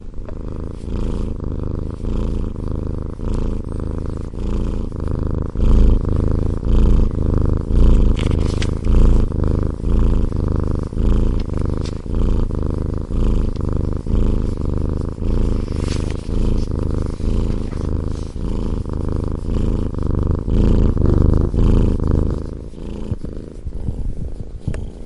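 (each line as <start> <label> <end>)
0.0 Snoring with a rhythmic pattern. 22.4
22.4 Snoring in the distance. 25.0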